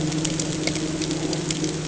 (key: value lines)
label: anthrophony, boat engine
recorder: HydroMoth